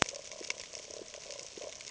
{"label": "ambient", "recorder": "HydroMoth"}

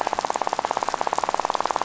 {"label": "biophony, rattle", "recorder": "SoundTrap 500"}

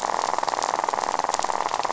{"label": "biophony, rattle", "recorder": "SoundTrap 500"}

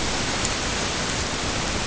{"label": "ambient", "recorder": "HydroMoth"}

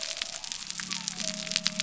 {"label": "biophony", "recorder": "SoundTrap 300"}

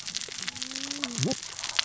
{"label": "biophony, cascading saw", "recorder": "SoundTrap 600 or HydroMoth"}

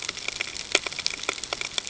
{"label": "ambient", "recorder": "HydroMoth"}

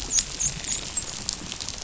{"label": "biophony, dolphin", "recorder": "SoundTrap 500"}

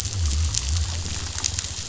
{"label": "biophony", "recorder": "SoundTrap 500"}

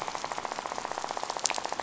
{"label": "biophony, rattle", "recorder": "SoundTrap 500"}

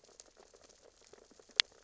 {"label": "biophony, sea urchins (Echinidae)", "recorder": "SoundTrap 600 or HydroMoth"}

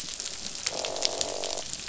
{"label": "biophony, croak", "recorder": "SoundTrap 500"}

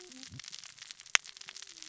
{"label": "biophony, cascading saw", "recorder": "SoundTrap 600 or HydroMoth"}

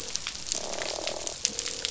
{"label": "biophony, croak", "recorder": "SoundTrap 500"}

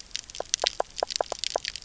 {"label": "biophony", "recorder": "SoundTrap 300"}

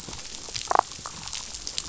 {"label": "biophony, damselfish", "recorder": "SoundTrap 500"}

